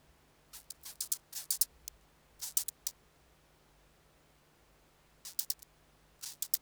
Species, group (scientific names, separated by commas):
Chorthippus vagans, Orthoptera